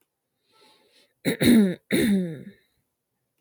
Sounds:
Throat clearing